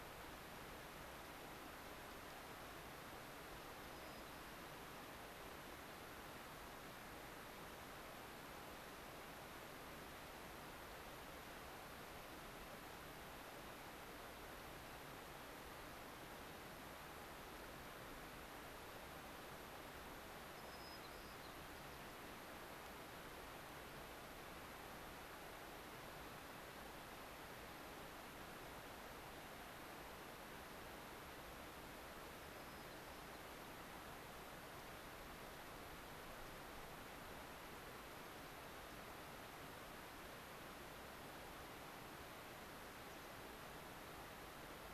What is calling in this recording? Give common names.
White-crowned Sparrow